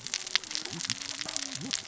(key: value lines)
label: biophony, cascading saw
recorder: SoundTrap 600 or HydroMoth